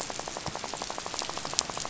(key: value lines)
label: biophony, rattle
recorder: SoundTrap 500